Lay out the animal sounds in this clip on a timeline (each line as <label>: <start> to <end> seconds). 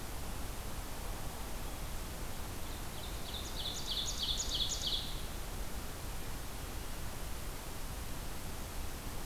Ovenbird (Seiurus aurocapilla): 2.5 to 5.2 seconds